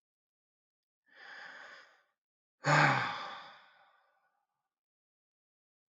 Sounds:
Sigh